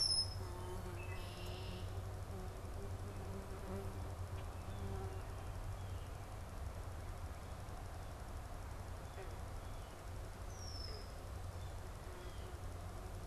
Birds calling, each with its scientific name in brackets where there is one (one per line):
Red-winged Blackbird (Agelaius phoeniceus)
Blue Jay (Cyanocitta cristata)